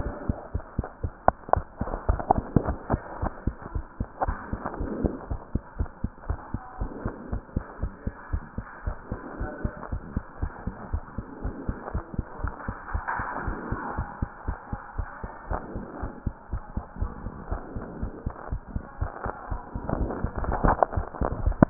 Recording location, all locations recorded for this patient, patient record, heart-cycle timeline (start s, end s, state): mitral valve (MV)
aortic valve (AV)+pulmonary valve (PV)+tricuspid valve (TV)+mitral valve (MV)
#Age: Child
#Sex: Female
#Height: 112.0 cm
#Weight: 18.6 kg
#Pregnancy status: False
#Murmur: Absent
#Murmur locations: nan
#Most audible location: nan
#Systolic murmur timing: nan
#Systolic murmur shape: nan
#Systolic murmur grading: nan
#Systolic murmur pitch: nan
#Systolic murmur quality: nan
#Diastolic murmur timing: nan
#Diastolic murmur shape: nan
#Diastolic murmur grading: nan
#Diastolic murmur pitch: nan
#Diastolic murmur quality: nan
#Outcome: Normal
#Campaign: 2015 screening campaign
0.00	3.96	unannotated
3.96	4.08	S2
4.08	4.26	diastole
4.26	4.38	S1
4.38	4.50	systole
4.50	4.60	S2
4.60	4.78	diastole
4.78	4.94	S1
4.94	5.02	systole
5.02	5.14	S2
5.14	5.28	diastole
5.28	5.40	S1
5.40	5.50	systole
5.50	5.62	S2
5.62	5.76	diastole
5.76	5.88	S1
5.88	6.00	systole
6.00	6.12	S2
6.12	6.28	diastole
6.28	6.40	S1
6.40	6.50	systole
6.50	6.62	S2
6.62	6.80	diastole
6.80	6.92	S1
6.92	7.02	systole
7.02	7.14	S2
7.14	7.30	diastole
7.30	7.42	S1
7.42	7.52	systole
7.52	7.64	S2
7.64	7.80	diastole
7.80	7.94	S1
7.94	8.05	systole
8.05	8.15	S2
8.15	8.31	diastole
8.31	8.41	S1
8.41	8.54	systole
8.54	8.66	S2
8.66	8.84	diastole
8.84	8.96	S1
8.96	9.10	systole
9.10	9.20	S2
9.20	9.38	diastole
9.38	9.52	S1
9.52	9.62	systole
9.62	9.74	S2
9.74	9.90	diastole
9.90	10.04	S1
10.04	10.14	systole
10.14	10.26	S2
10.26	10.40	diastole
10.40	10.52	S1
10.52	10.64	systole
10.64	10.74	S2
10.74	10.88	diastole
10.88	11.02	S1
11.02	11.14	systole
11.14	11.26	S2
11.26	11.42	diastole
11.42	11.56	S1
11.56	11.66	systole
11.66	11.76	S2
11.76	11.92	diastole
11.92	12.04	S1
12.04	12.14	systole
12.14	12.24	S2
12.24	12.40	diastole
12.40	12.54	S1
12.54	12.66	systole
12.66	12.76	S2
12.76	12.92	diastole
12.92	13.04	S1
13.04	13.18	systole
13.18	13.26	S2
13.26	13.42	diastole
13.42	13.58	S1
13.58	13.70	systole
13.70	13.80	S2
13.80	13.96	diastole
13.96	14.08	S1
14.08	14.18	systole
14.18	14.30	S2
14.30	14.46	diastole
14.46	14.58	S1
14.58	14.70	systole
14.70	14.80	S2
14.80	14.96	diastole
14.96	15.08	S1
15.08	15.22	systole
15.22	15.32	S2
15.32	15.48	diastole
15.48	15.61	S1
15.61	15.73	systole
15.73	15.86	S2
15.86	16.00	diastole
16.00	16.14	S1
16.14	16.22	systole
16.22	16.34	S2
16.34	16.50	diastole
16.50	16.62	S1
16.62	16.74	systole
16.74	16.84	S2
16.84	17.00	diastole
17.00	17.14	S1
17.14	17.22	systole
17.22	17.34	S2
17.34	17.50	diastole
17.50	17.64	S1
17.64	17.74	systole
17.74	17.84	S2
17.84	17.98	diastole
17.98	18.12	S1
18.12	18.22	systole
18.22	18.34	S2
18.34	18.50	diastole
18.50	18.62	S1
18.62	18.74	systole
18.74	18.84	S2
18.84	18.99	diastole
18.99	19.12	S1
19.12	19.24	systole
19.24	19.34	S2
19.34	19.50	diastole
19.50	21.70	unannotated